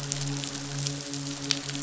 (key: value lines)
label: biophony, midshipman
recorder: SoundTrap 500